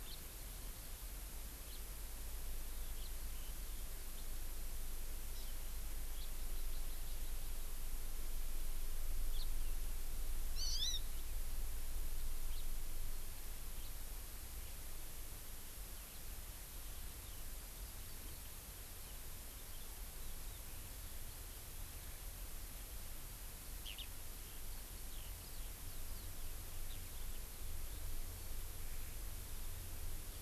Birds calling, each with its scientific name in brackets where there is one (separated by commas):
House Finch (Haemorhous mexicanus), Hawaii Amakihi (Chlorodrepanis virens), Eurasian Skylark (Alauda arvensis)